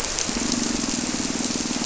{"label": "anthrophony, boat engine", "recorder": "SoundTrap 300"}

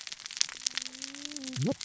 {"label": "biophony, cascading saw", "recorder": "SoundTrap 600 or HydroMoth"}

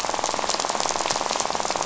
{"label": "biophony, rattle", "recorder": "SoundTrap 500"}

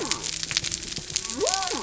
{"label": "biophony", "recorder": "SoundTrap 300"}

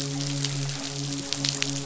{"label": "biophony, midshipman", "recorder": "SoundTrap 500"}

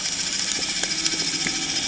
{"label": "anthrophony, boat engine", "recorder": "HydroMoth"}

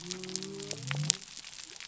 {"label": "biophony", "recorder": "SoundTrap 300"}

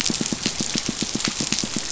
{"label": "biophony, pulse", "recorder": "SoundTrap 500"}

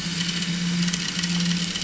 {"label": "anthrophony, boat engine", "recorder": "SoundTrap 500"}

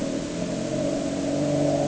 {"label": "anthrophony, boat engine", "recorder": "HydroMoth"}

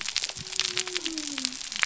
{"label": "biophony", "recorder": "SoundTrap 300"}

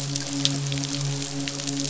{"label": "biophony, midshipman", "recorder": "SoundTrap 500"}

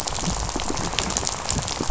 {"label": "biophony, rattle", "recorder": "SoundTrap 500"}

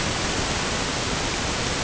{"label": "ambient", "recorder": "HydroMoth"}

